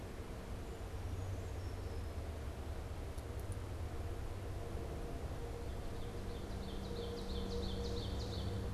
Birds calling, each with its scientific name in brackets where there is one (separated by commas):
Ovenbird (Seiurus aurocapilla), Brown Creeper (Certhia americana)